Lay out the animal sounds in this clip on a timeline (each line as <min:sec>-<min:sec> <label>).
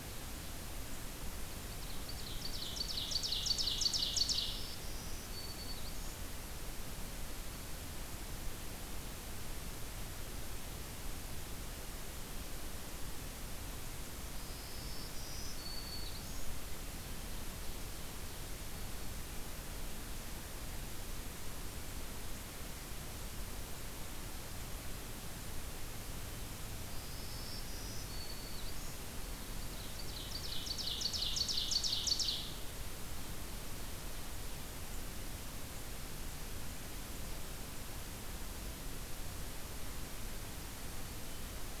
0:01.7-0:04.7 Ovenbird (Seiurus aurocapilla)
0:03.9-0:06.2 Black-throated Green Warbler (Setophaga virens)
0:14.4-0:16.5 Black-throated Green Warbler (Setophaga virens)
0:18.6-0:19.2 Black-throated Green Warbler (Setophaga virens)
0:26.8-0:29.0 Black-throated Green Warbler (Setophaga virens)
0:29.5-0:32.6 Ovenbird (Seiurus aurocapilla)